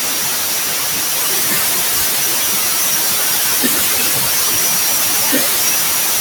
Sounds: Laughter